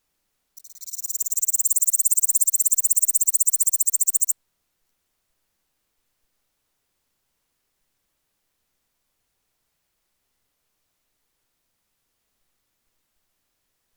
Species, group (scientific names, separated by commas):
Pholidoptera littoralis, Orthoptera